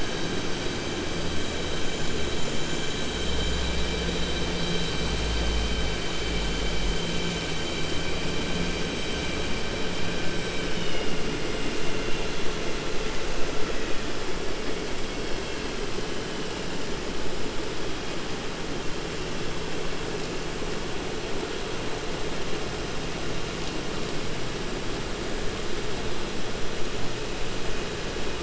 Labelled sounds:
10.5	11.1	vessel noise, 2.1 to 5.1 kHz

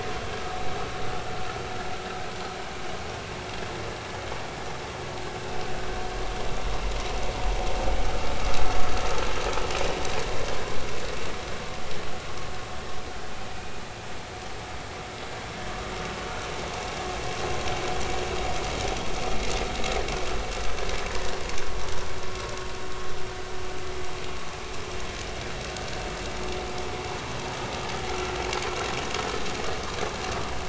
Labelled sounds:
28.1	28.3	vessel noise, 1.3 to 1.4 kHz

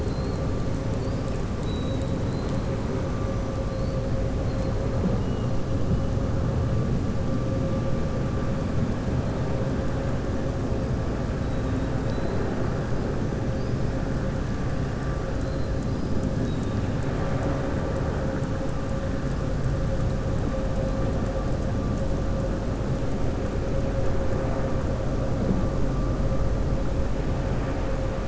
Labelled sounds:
16.4	16.9	killer whale, southern resident, 2.7 to 3.9 kHz

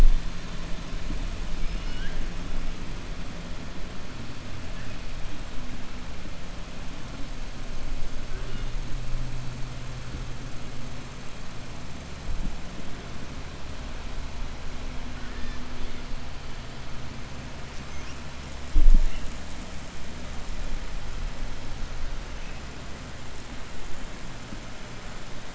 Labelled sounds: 1.5	2.2	killer whale, 0.90 to 5.3 kHz

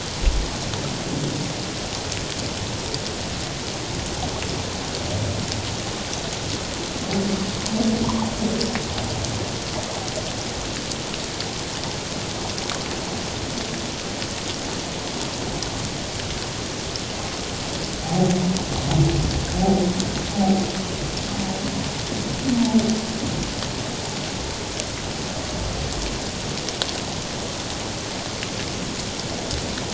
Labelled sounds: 8.0	8.3	humpback whale, 0.81 to 1.2 kHz
20.3	20.6	humpback whale, 0.78 to 0.84 kHz

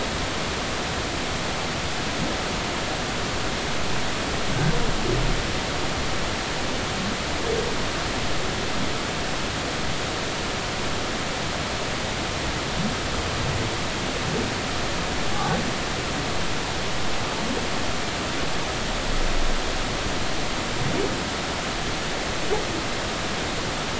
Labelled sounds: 15.3	15.6	humpback whale, 0.80 to 0.93 kHz

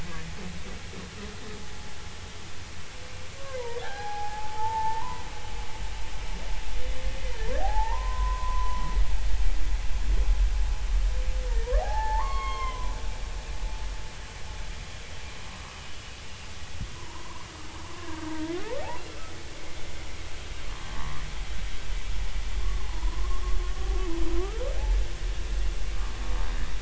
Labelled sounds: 3.4	5.2	humpback whale, 0.80 to 1.9 kHz
7.2	8.9	humpback whale, 0.80 to 2.1 kHz
11.8	12.9	humpback whale, 0.80 to 6.6 kHz
16.9	18.6	humpback whale, 0.90 to 1.8 kHz
20.9	21.2	humpback whale, 0.86 to 1.2 kHz
22.6	23.6	humpback whale, 0.93 to 1.2 kHz

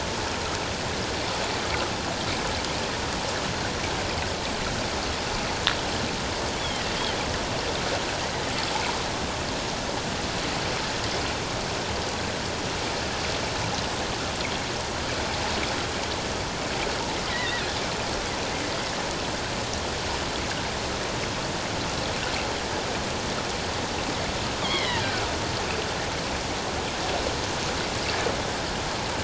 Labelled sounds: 17.3	17.8	killer whale, offshore, 1.6 to 2.1 kHz
24.6	25.1	killer whale, offshore, 1.8 to 4.4 kHz

